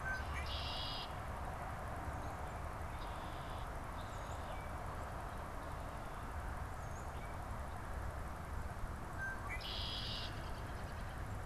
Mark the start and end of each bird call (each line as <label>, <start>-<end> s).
Red-winged Blackbird (Agelaius phoeniceus), 0.0-3.8 s
Tufted Titmouse (Baeolophus bicolor), 4.1-4.8 s
Tufted Titmouse (Baeolophus bicolor), 6.7-7.5 s
Red-winged Blackbird (Agelaius phoeniceus), 8.7-11.4 s